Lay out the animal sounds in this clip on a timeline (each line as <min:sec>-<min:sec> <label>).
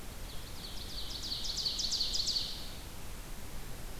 0:00.2-0:02.8 Ovenbird (Seiurus aurocapilla)